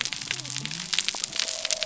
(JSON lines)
{"label": "biophony", "recorder": "SoundTrap 300"}